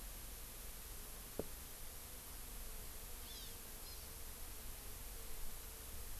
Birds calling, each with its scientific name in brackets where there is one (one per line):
Hawaii Amakihi (Chlorodrepanis virens)